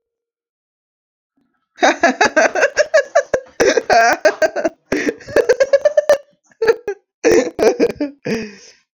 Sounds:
Laughter